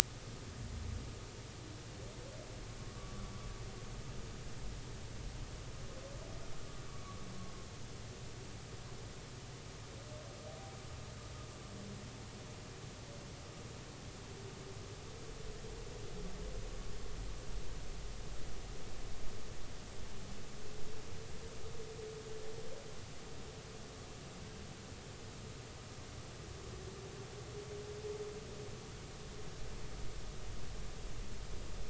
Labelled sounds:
2.8	3.3	humpback whale, 1.1 to 1.2 kHz
6.9	7.2	humpback whale, 1.1 to 1.2 kHz

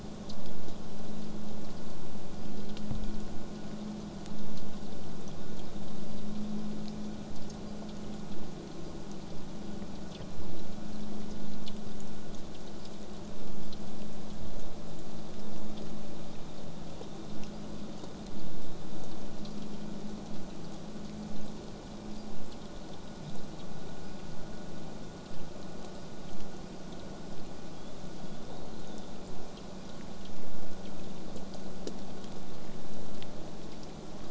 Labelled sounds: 18.1	23.0	killer whale, southern resident, J pod, 7.3 to 8.0 kHz
27.7	29.2	killer whale, southern resident, J pod, whistle, 3.1 to 4.4 kHz

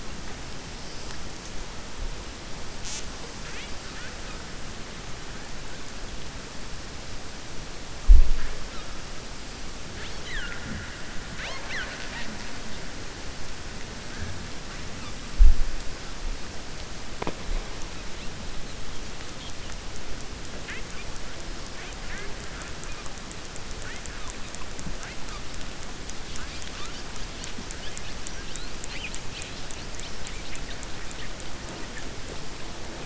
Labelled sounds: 11.3	12.3	killer whale, 0.57 to 6.2 kHz

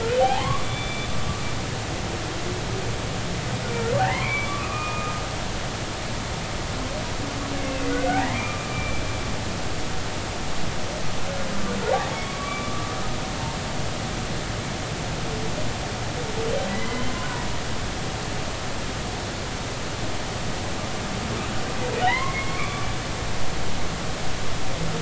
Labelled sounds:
0.1	1.1	humpback whale, 0.80 to 3.6 kHz
4.0	5.2	humpback whale, 0.80 to 2.7 kHz
8.1	9.0	humpback whale, 0.80 to 2.4 kHz
12.2	12.8	humpback whale, 1.1 to 2.4 kHz
16.7	17.1	humpback whale, 0.96 to 2.1 kHz
22.0	22.9	humpback whale, 0.80 to 3.2 kHz

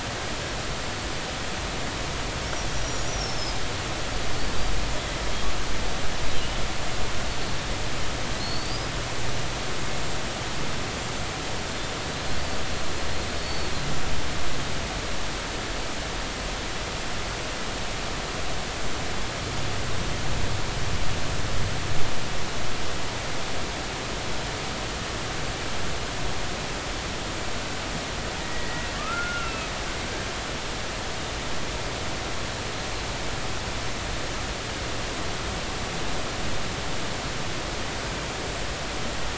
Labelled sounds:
2.7	3.6	humpback whale, 4.9 to 6.0 kHz
8.4	8.9	humpback whale, 4.2 to 5.2 kHz
13.3	13.7	humpback whale, 4.3 to 4.5 kHz
28.4	29.7	humpback whale, 1.1 to 2.9 kHz

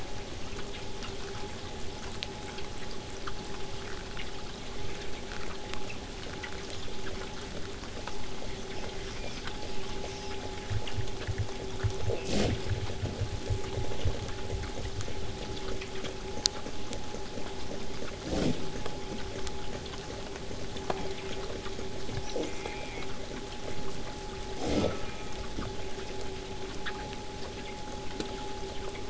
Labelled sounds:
6.5	6.9	killer whale, southern resident, 2.9 to 7.9 kHz
8.1	10.4	killer whale, southern resident, 1.6 to 7.1 kHz
12.0	12.7	killer whale, southern resident, J pod, call S04, 0.22 to 2.8 kHz
20.9	21.5	killer whale, southern resident, J pod, call S04, 0.26 to 3.7 kHz
22.2	23.1	killer whale, southern resident, J pod, call S04, 0.18 to 7.8 kHz
24.7	25.4	killer whale, southern resident, J pod, call S04, 0.62 to 3.8 kHz

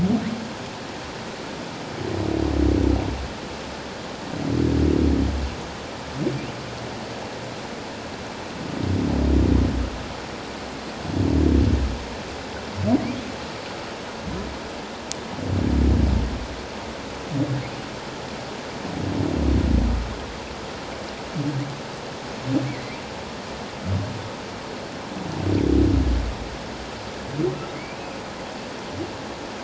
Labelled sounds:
22.7	23.0	humpback whale, 1.8 to 2.4 kHz

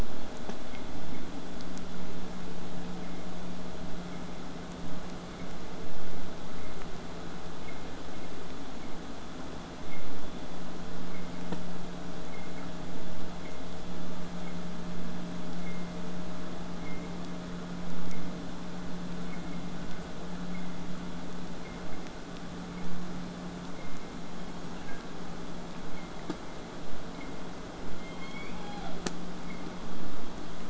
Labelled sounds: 27.9	29.2	killer whale, southern resident, J pod, call S01, 0.46 to 5.1 kHz

